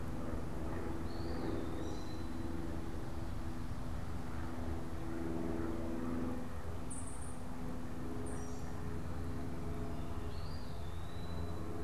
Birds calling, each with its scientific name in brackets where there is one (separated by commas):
Eastern Wood-Pewee (Contopus virens), American Robin (Turdus migratorius), unidentified bird